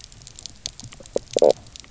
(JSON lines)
{"label": "biophony", "recorder": "SoundTrap 300"}